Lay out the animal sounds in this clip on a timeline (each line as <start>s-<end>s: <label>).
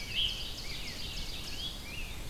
0.0s-1.8s: Ovenbird (Seiurus aurocapilla)
0.0s-2.3s: Rose-breasted Grosbeak (Pheucticus ludovicianus)